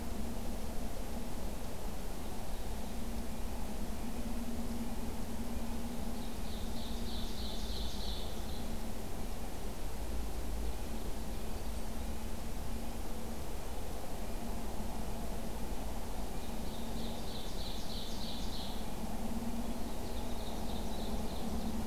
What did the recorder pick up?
Red-breasted Nuthatch, Ovenbird